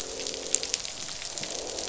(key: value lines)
label: biophony, croak
recorder: SoundTrap 500